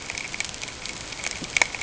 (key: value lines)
label: ambient
recorder: HydroMoth